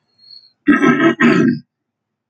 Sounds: Throat clearing